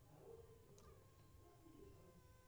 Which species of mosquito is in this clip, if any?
Culex pipiens complex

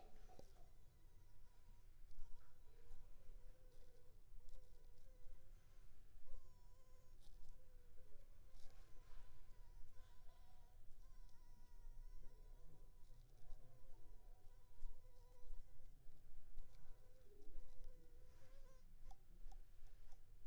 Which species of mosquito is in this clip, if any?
Anopheles funestus s.s.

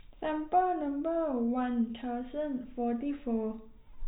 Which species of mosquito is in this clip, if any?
no mosquito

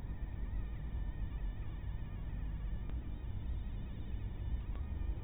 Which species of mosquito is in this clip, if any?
mosquito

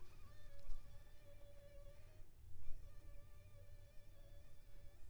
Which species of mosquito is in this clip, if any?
Anopheles funestus s.s.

